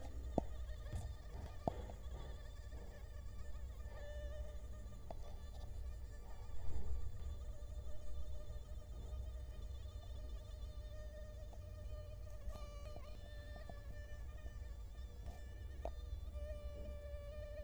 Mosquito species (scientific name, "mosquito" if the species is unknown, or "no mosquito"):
Culex quinquefasciatus